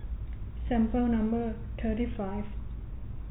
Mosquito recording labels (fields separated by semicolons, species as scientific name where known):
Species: no mosquito; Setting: cup